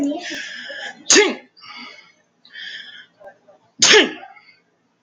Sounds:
Sneeze